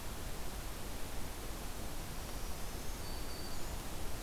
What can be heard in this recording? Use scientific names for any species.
Setophaga virens